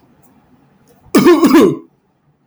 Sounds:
Cough